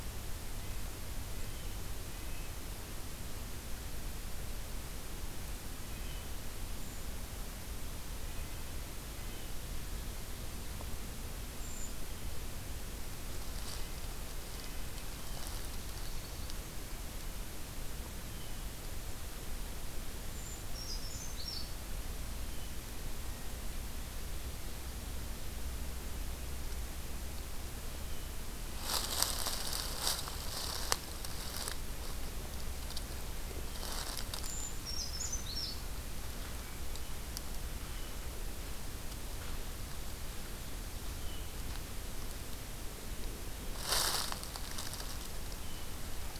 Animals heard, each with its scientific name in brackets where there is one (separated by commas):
Red-breasted Nuthatch (Sitta canadensis), Blue Jay (Cyanocitta cristata), Brown Creeper (Certhia americana)